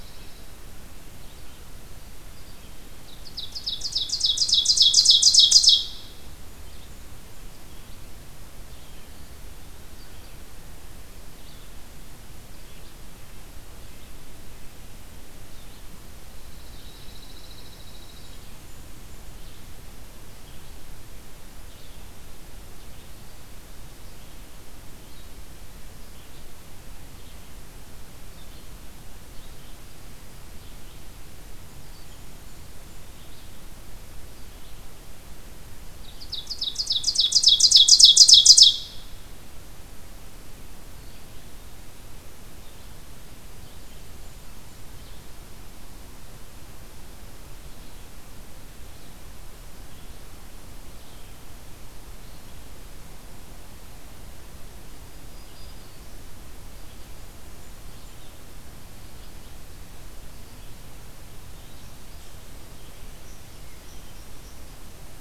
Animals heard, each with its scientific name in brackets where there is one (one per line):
Ovenbird (Seiurus aurocapilla)
unknown mammal
Blackburnian Warbler (Setophaga fusca)
Red-eyed Vireo (Vireo olivaceus)
Black-throated Green Warbler (Setophaga virens)
Pine Warbler (Setophaga pinus)